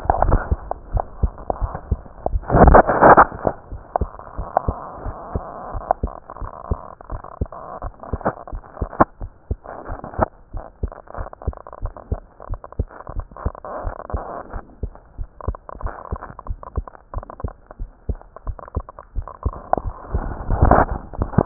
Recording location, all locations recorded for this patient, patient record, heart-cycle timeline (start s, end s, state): pulmonary valve (PV)
aortic valve (AV)+pulmonary valve (PV)+tricuspid valve (TV)+mitral valve (MV)
#Age: Child
#Sex: Female
#Height: nan
#Weight: nan
#Pregnancy status: False
#Murmur: Absent
#Murmur locations: nan
#Most audible location: nan
#Systolic murmur timing: nan
#Systolic murmur shape: nan
#Systolic murmur grading: nan
#Systolic murmur pitch: nan
#Systolic murmur quality: nan
#Diastolic murmur timing: nan
#Diastolic murmur shape: nan
#Diastolic murmur grading: nan
#Diastolic murmur pitch: nan
#Diastolic murmur quality: nan
#Outcome: Normal
#Campaign: 2015 screening campaign
0.00	5.03	unannotated
5.03	5.14	S1
5.14	5.34	systole
5.34	5.44	S2
5.44	5.72	diastole
5.72	5.84	S1
5.84	6.02	systole
6.02	6.12	S2
6.12	6.40	diastole
6.40	6.50	S1
6.50	6.70	systole
6.70	6.80	S2
6.80	7.10	diastole
7.10	7.20	S1
7.20	7.40	systole
7.40	7.50	S2
7.50	7.82	diastole
7.82	7.92	S1
7.92	8.12	systole
8.12	8.22	S2
8.22	8.52	diastole
8.52	8.62	S1
8.62	8.80	systole
8.80	8.90	S2
8.90	9.22	diastole
9.22	9.32	S1
9.32	9.50	systole
9.50	9.60	S2
9.60	9.88	diastole
9.88	9.98	S1
9.98	10.16	systole
10.16	10.28	S2
10.28	10.54	diastole
10.54	10.64	S1
10.64	10.82	systole
10.82	10.92	S2
10.92	11.18	diastole
11.18	11.28	S1
11.28	11.46	systole
11.46	11.58	S2
11.58	11.84	diastole
11.84	11.94	S1
11.94	12.10	systole
12.10	12.22	S2
12.22	12.50	diastole
12.50	12.60	S1
12.60	12.76	systole
12.76	12.88	S2
12.88	13.14	diastole
13.14	13.26	S1
13.26	13.42	systole
13.42	13.56	S2
13.56	13.82	diastole
13.82	13.94	S1
13.94	14.10	systole
14.10	14.22	S2
14.22	14.52	diastole
14.52	14.62	S1
14.62	14.81	systole
14.81	14.94	S2
14.94	15.17	diastole
15.17	15.28	S1
15.28	15.44	systole
15.44	15.56	S2
15.56	15.82	diastole
15.82	15.92	S1
15.92	16.10	systole
16.10	16.20	S2
16.20	16.48	diastole
16.48	16.60	S1
16.60	16.76	systole
16.76	16.88	S2
16.88	17.14	diastole
17.14	17.24	S1
17.24	17.42	systole
17.42	17.52	S2
17.52	17.78	diastole
17.78	17.88	S1
17.88	18.06	systole
18.06	18.20	S2
18.20	18.46	diastole
18.46	18.56	S1
18.56	18.74	systole
18.74	18.84	S2
18.84	19.14	diastole
19.14	19.28	S1
19.28	19.42	systole
19.42	19.54	S2
19.54	19.82	diastole
19.82	19.94	S1
19.94	21.46	unannotated